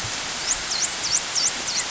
{"label": "biophony, dolphin", "recorder": "SoundTrap 500"}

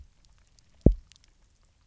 {"label": "biophony, double pulse", "recorder": "SoundTrap 300"}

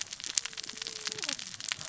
{"label": "biophony, cascading saw", "recorder": "SoundTrap 600 or HydroMoth"}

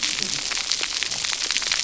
{"label": "biophony, cascading saw", "recorder": "SoundTrap 300"}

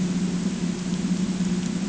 {"label": "ambient", "recorder": "HydroMoth"}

